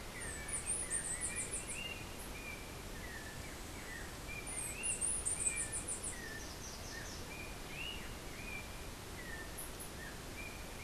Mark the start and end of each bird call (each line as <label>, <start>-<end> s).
Chestnut-capped Brushfinch (Arremon brunneinucha), 0.0-6.1 s
Yellow-backed Oriole (Icterus chrysater), 0.0-10.8 s